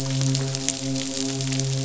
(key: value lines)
label: biophony, midshipman
recorder: SoundTrap 500